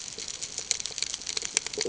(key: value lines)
label: ambient
recorder: HydroMoth